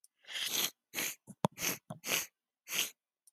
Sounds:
Sniff